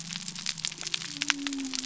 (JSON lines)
{"label": "biophony", "recorder": "SoundTrap 300"}